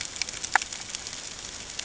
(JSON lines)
{"label": "ambient", "recorder": "HydroMoth"}